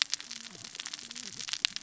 {"label": "biophony, cascading saw", "recorder": "SoundTrap 600 or HydroMoth"}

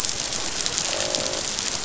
{"label": "biophony, croak", "recorder": "SoundTrap 500"}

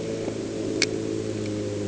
{"label": "anthrophony, boat engine", "recorder": "HydroMoth"}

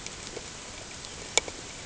{"label": "ambient", "recorder": "HydroMoth"}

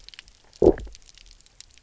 {"label": "biophony, low growl", "recorder": "SoundTrap 300"}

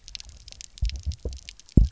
{"label": "biophony, double pulse", "recorder": "SoundTrap 300"}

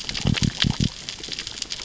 {"label": "biophony", "recorder": "SoundTrap 600 or HydroMoth"}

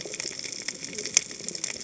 {"label": "biophony, cascading saw", "recorder": "HydroMoth"}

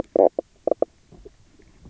{"label": "biophony, knock croak", "recorder": "SoundTrap 300"}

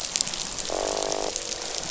{"label": "biophony, croak", "recorder": "SoundTrap 500"}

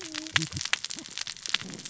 {"label": "biophony, cascading saw", "recorder": "SoundTrap 600 or HydroMoth"}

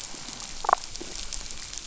{"label": "biophony, damselfish", "recorder": "SoundTrap 500"}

